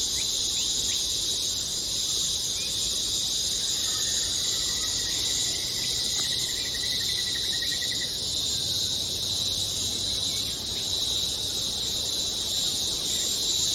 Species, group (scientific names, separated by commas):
Psaltoda plaga, Cicadidae